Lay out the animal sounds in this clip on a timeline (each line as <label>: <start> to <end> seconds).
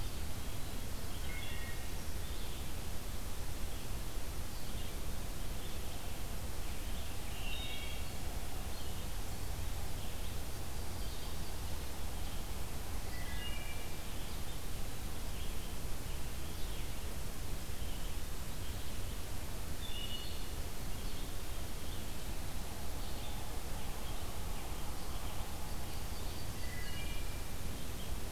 Red-eyed Vireo (Vireo olivaceus): 0.0 to 28.3 seconds
Wood Thrush (Hylocichla mustelina): 1.1 to 1.9 seconds
Wood Thrush (Hylocichla mustelina): 7.0 to 8.3 seconds
Yellow-rumped Warbler (Setophaga coronata): 10.3 to 11.7 seconds
Wood Thrush (Hylocichla mustelina): 13.0 to 13.9 seconds
Wood Thrush (Hylocichla mustelina): 19.7 to 20.6 seconds
Yellow-rumped Warbler (Setophaga coronata): 25.4 to 26.5 seconds
Wood Thrush (Hylocichla mustelina): 26.6 to 27.5 seconds